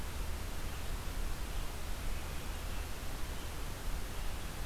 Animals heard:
forest ambience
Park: Marsh-Billings-Rockefeller National Historical Park